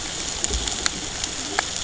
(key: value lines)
label: ambient
recorder: HydroMoth